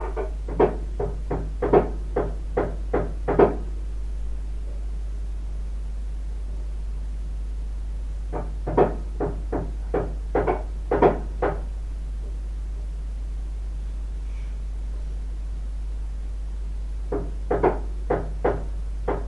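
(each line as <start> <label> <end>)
0.0 Rhythmic knocking caused by a hammer. 3.7
8.5 Rhythmic knocking caused by a hammer. 12.0
14.1 A person shoos with a short, breathy exhalation. 14.6
17.1 Rhythmic knocking caused by a hammer. 19.3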